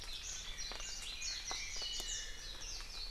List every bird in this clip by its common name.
Iiwi